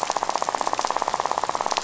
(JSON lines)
{"label": "biophony, rattle", "recorder": "SoundTrap 500"}